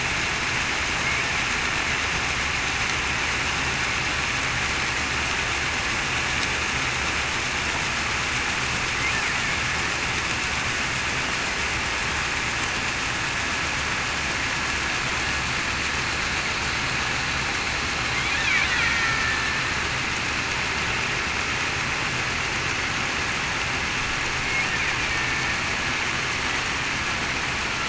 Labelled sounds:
18.8	19.5	killer whale, Bigg's (transient), 1.7 to 1.9 kHz

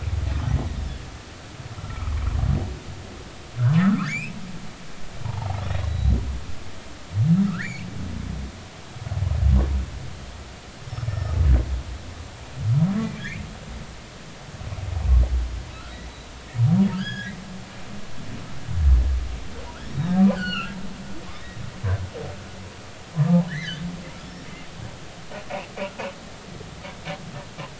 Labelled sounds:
1.8	2.1	humpback whale, 1.1 to 1.4 kHz
3.8	4.3	humpback whale, 1.0 to 2.7 kHz
5.2	6.2	humpback whale, 0.80 to 4.0 kHz
7.4	7.9	humpback whale, 1.1 to 4.7 kHz
10.8	11.3	humpback whale, 1.7 to 5.5 kHz
13.2	13.5	humpback whale, 1.6 to 2.7 kHz
15.7	16.0	humpback whale, 1.2 to 1.5 kHz
16.9	17.3	humpback whale, 1.4 to 5.2 kHz
20.3	20.7	humpback whale, 1.2 to 4.8 kHz
21.3	21.6	humpback whale, 3.5 to 3.9 kHz
23.2	24.5	humpback whale, 1.1 to 5.7 kHz

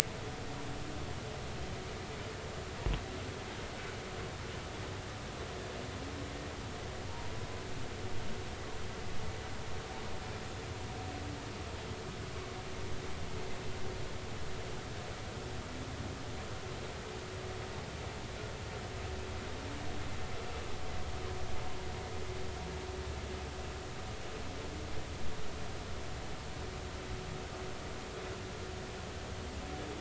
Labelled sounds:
7.1	7.3	humpback whale, 0.86 to 0.99 kHz

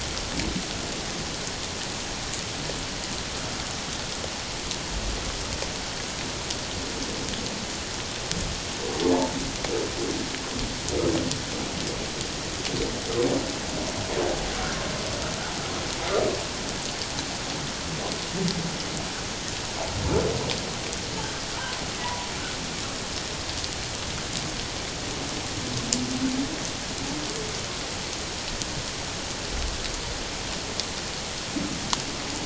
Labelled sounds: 22.0	22.3	humpback whale, 0.84 to 1.0 kHz

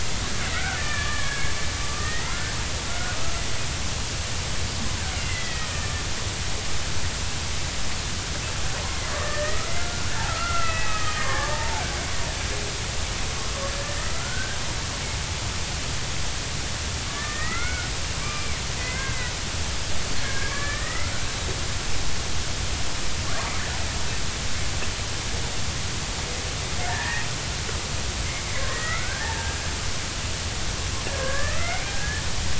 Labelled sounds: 0.5	1.5	killer whale, Bigg's (transient), 1.1 to 2.4 kHz
1.9	2.5	killer whale, Bigg's (transient), 1.1 to 2.2 kHz
2.9	3.2	killer whale, Bigg's (transient), 1.3 to 1.6 kHz
5.2	5.9	killer whale, Bigg's (transient), 1.7 to 2.1 kHz
9.1	11.8	killer whale, Bigg's (transient), 0.80 to 2.7 kHz
13.7	14.6	killer whale, Bigg's (transient), 1.2 to 1.9 kHz
17.1	17.9	killer whale, Bigg's (transient), 1.1 to 2.3 kHz
18.2	19.3	killer whale, Bigg's (transient), 1.2 to 2.5 kHz
20.2	21.5	killer whale, Bigg's (transient), 1.1 to 3.9 kHz
26.9	27.3	killer whale, Bigg's (transient), 1.6 to 1.9 kHz
28.5	29.5	killer whale, Bigg's (transient), 0.80 to 2.2 kHz
31.2	32.3	killer whale, Bigg's (transient), 0.99 to 2.5 kHz

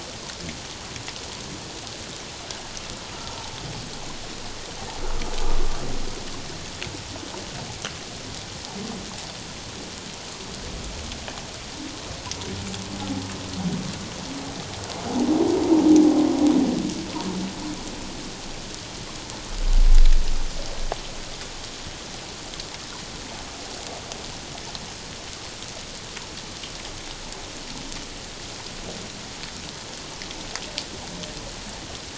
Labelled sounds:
3.2	3.4	humpback whale, 1.2 to 1.4 kHz

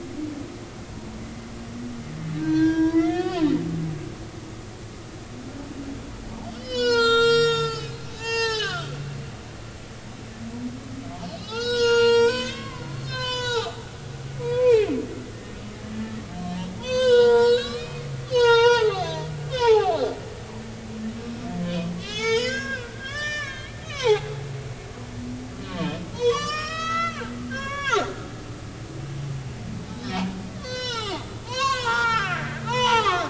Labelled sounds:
2.4	3.4	humpback whale, 0.90 to 6.1 kHz
6.6	8.9	humpback whale, 0.80 to 7.9 kHz
11.4	13.8	humpback whale, 0.80 to 8.0 kHz
14.4	15.6	humpback whale, 0.80 to 2.6 kHz
16.8	20.1	humpback whale, 0.80 to 7.8 kHz
21.6	24.3	humpback whale, 0.80 to 7.4 kHz
25.8	27.2	humpback whale, 0.86 to 7.4 kHz
27.5	28.1	humpback whale, 0.80 to 6.8 kHz
29.9	30.2	humpback whale, 3.7 to 4.1 kHz
30.6	33.2	humpback whale, 0.80 to 8.0 kHz

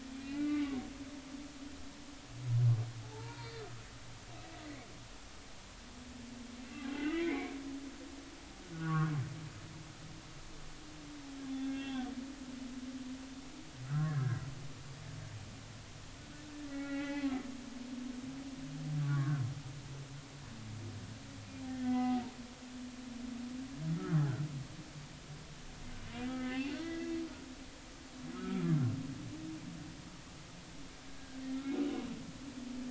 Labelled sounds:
0.1	0.7	humpback whale, 1.4 to 2.6 kHz
3.1	3.7	humpback whale, 0.80 to 4.8 kHz
7.0	7.6	humpback whale, 1.9 to 2.5 kHz
8.7	9.1	humpback whale, 1.0 to 1.6 kHz
11.5	12.1	humpback whale, 1.5 to 3.6 kHz
13.9	14.4	humpback whale, 1.2 to 1.9 kHz
16.7	17.3	humpback whale, 0.80 to 3.5 kHz
19.0	19.4	humpback whale, 0.99 to 1.9 kHz
21.7	22.2	humpback whale, 0.93 to 2.1 kHz
26.3	27.1	humpback whale, 1.2 to 4.7 kHz
28.3	28.7	humpback whale, 1.2 to 1.4 kHz
31.1	31.4	humpback whale, 1.5 to 1.7 kHz

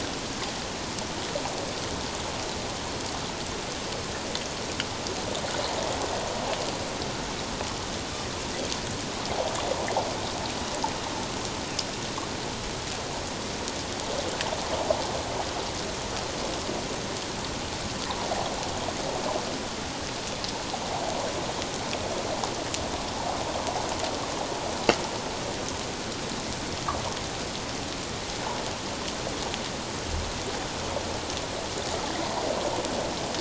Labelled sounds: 32.2	32.4	water noise, 0.78 to 1.1 kHz

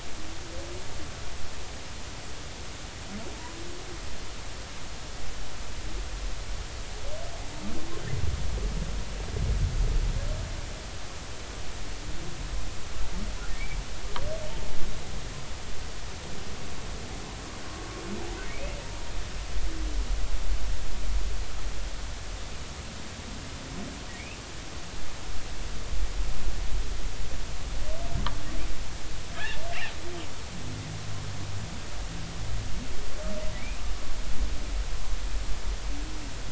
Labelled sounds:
3.3	3.6	humpback whale, 0.86 to 1.1 kHz
29.4	29.6	humpback whale, 1.5 to 2.0 kHz
33.6	33.8	humpback whale, 2.1 to 2.8 kHz

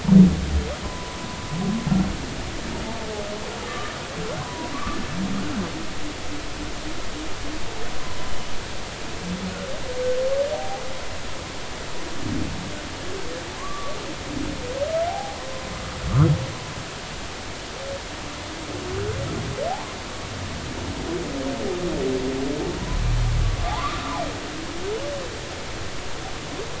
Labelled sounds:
0.8	1.2	humpback whale, 0.96 to 1.1 kHz
3.6	5.0	humpback whale, 0.93 to 1.5 kHz
10.5	10.8	humpback whale, 0.80 to 0.99 kHz
13.6	14.0	humpback whale, 0.96 to 1.2 kHz
15.1	15.4	humpback whale, 0.80 to 0.90 kHz
23.6	24.2	humpback whale, 0.80 to 1.4 kHz

